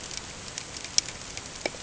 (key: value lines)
label: ambient
recorder: HydroMoth